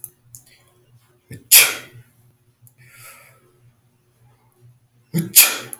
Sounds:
Sneeze